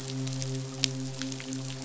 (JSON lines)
{"label": "biophony, midshipman", "recorder": "SoundTrap 500"}